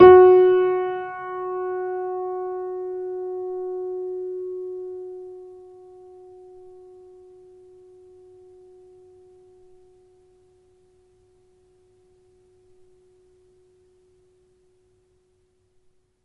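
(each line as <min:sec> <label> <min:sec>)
0:00.0 A loud piano key is pressed, and the note sustains for over 10 seconds. 0:11.8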